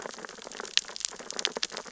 {"label": "biophony, sea urchins (Echinidae)", "recorder": "SoundTrap 600 or HydroMoth"}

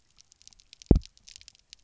{"label": "biophony, double pulse", "recorder": "SoundTrap 300"}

